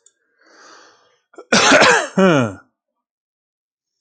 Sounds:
Throat clearing